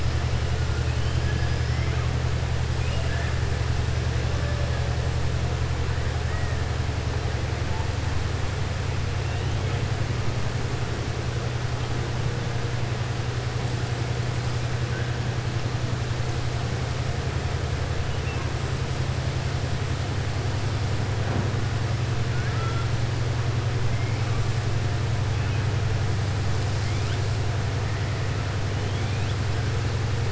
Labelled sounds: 2.7	3.3	killer whale, southern resident, 0.70 to 2.9 kHz
22.3	22.9	killer whale, southern resident, 1.2 to 2.7 kHz

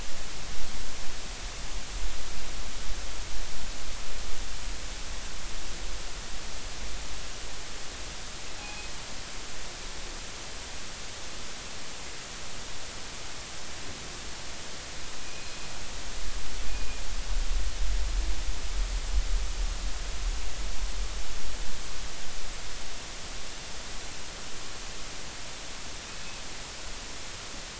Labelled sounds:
8.6	8.9	killer whale, northern resident, G clan, call N24ii, 2.4 to 2.6 kHz
15.2	15.6	killer whale, northern resident, G clan, call N24ii, 2.3 to 2.6 kHz
16.7	17.0	killer whale, northern resident, G clan, call N24ii, 2.4 to 2.5 kHz

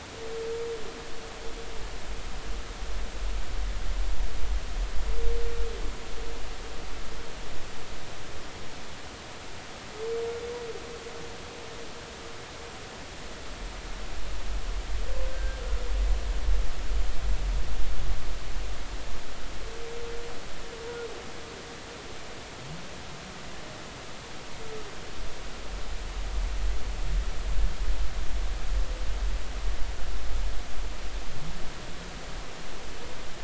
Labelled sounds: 15.3	15.6	humpback whale, 1.5 to 1.7 kHz

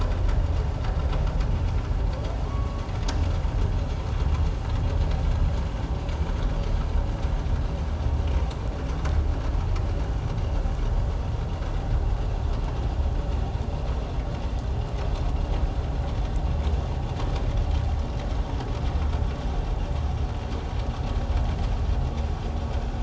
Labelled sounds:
2.5	2.8	humpback whale, 1.0 to 1.2 kHz

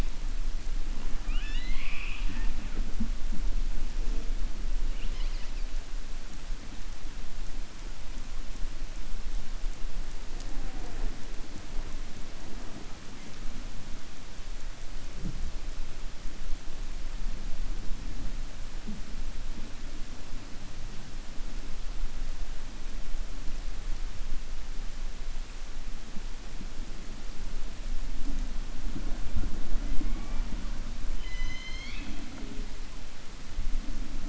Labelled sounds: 31.1	32.2	killer whale, 1.1 to 6.4 kHz

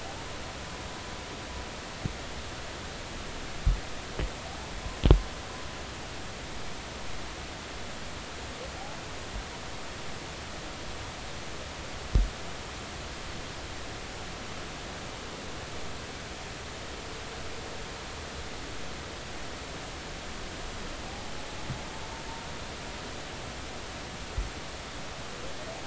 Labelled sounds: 21.1	21.3	humpback whale, 0.80 to 0.90 kHz

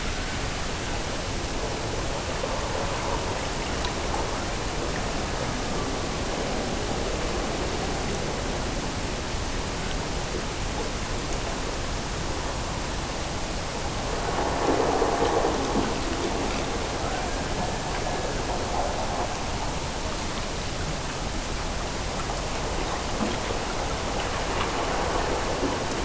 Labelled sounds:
17.0	18.6	killer whale, Bigg's (transient), Gulf of Alaska transient, 1.2 to 1.9 kHz

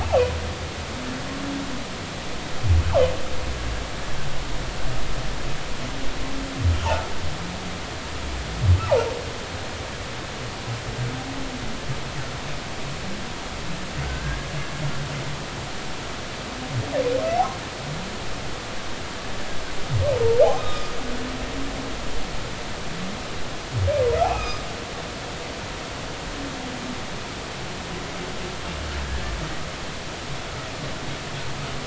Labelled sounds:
0.0	0.3	humpback whale, 2.4 to 2.8 kHz
14.0	14.5	humpback whale, 1.5 to 1.8 kHz
20.6	20.9	humpback whale, 1.2 to 3.8 kHz
24.2	24.6	humpback whale, 1.2 to 2.7 kHz

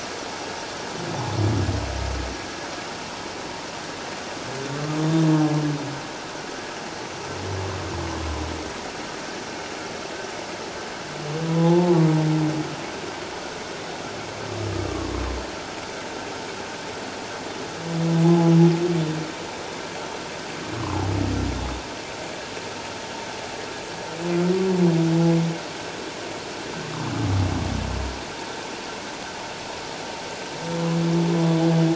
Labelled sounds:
11.5	12.1	humpback whale, 0.78 to 1.2 kHz
14.9	15.1	humpback whale, 1.0 to 1.2 kHz

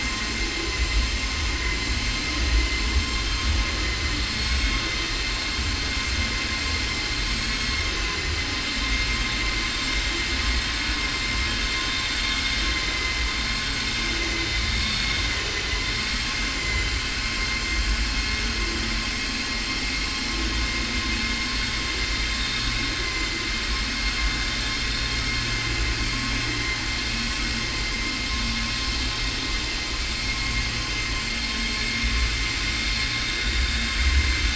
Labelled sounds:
4.3	4.9	vessel noise, 1.2 to 5.1 kHz

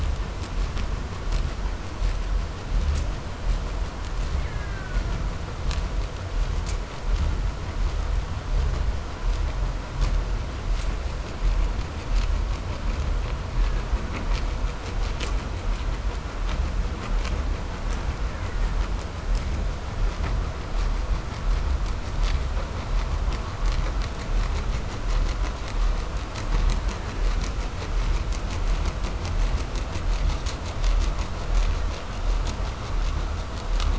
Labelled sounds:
4.2	5.5	killer whale, Bigg's (transient), call T07, 0.53 to 2.7 kHz
13.5	14.7	killer whale, Bigg's (transient), call T07, 0.72 to 2.1 kHz
17.7	19.0	killer whale, Bigg's (transient), call T08, 0.76 to 2.7 kHz
26.7	27.7	killer whale, 1.1 to 2.1 kHz

